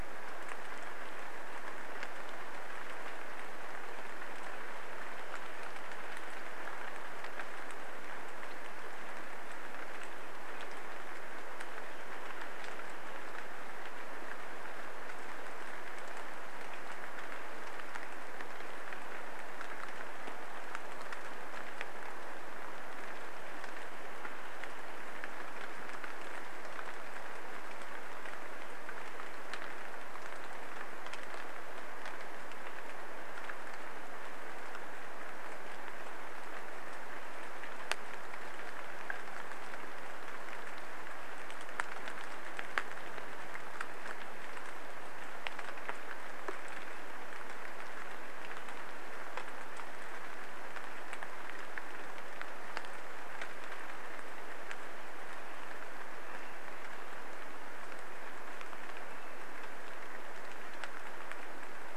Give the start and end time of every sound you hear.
[0, 62] rain
[56, 60] Swainson's Thrush call

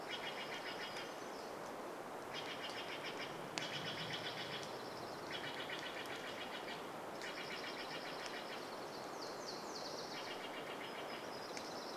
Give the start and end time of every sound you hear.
[0, 2] Dark-eyed Junco song
[0, 2] warbler song
[0, 12] Steller's Jay call
[0, 12] rain
[4, 12] Dark-eyed Junco song
[8, 12] Nashville Warbler song

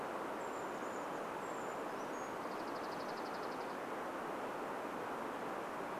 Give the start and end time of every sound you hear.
[0, 2] Chestnut-backed Chickadee call
[0, 4] Brown Creeper call
[2, 4] Dark-eyed Junco song

